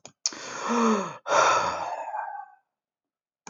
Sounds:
Sigh